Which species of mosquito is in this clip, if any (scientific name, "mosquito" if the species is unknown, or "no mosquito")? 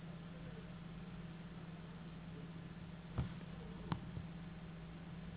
Anopheles gambiae s.s.